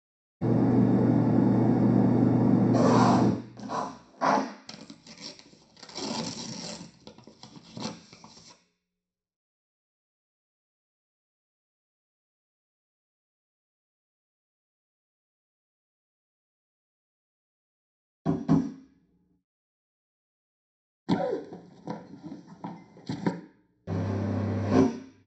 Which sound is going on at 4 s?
writing